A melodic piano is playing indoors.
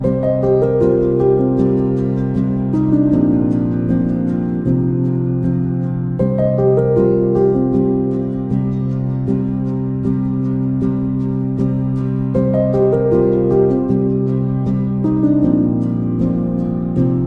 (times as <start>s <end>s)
0.0s 3.8s, 6.2s 8.2s, 12.3s 15.8s